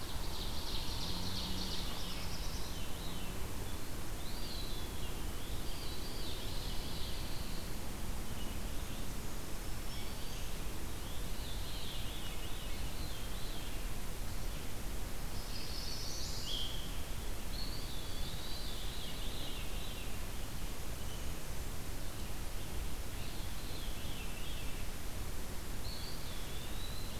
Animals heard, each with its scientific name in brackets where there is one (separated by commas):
Pine Warbler (Setophaga pinus), Veery (Catharus fuscescens), Chestnut-sided Warbler (Setophaga pensylvanica), Black-throated Green Warbler (Setophaga virens), Eastern Wood-Pewee (Contopus virens), Ovenbird (Seiurus aurocapilla), Black-throated Blue Warbler (Setophaga caerulescens)